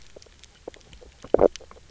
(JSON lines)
{"label": "biophony, knock croak", "recorder": "SoundTrap 300"}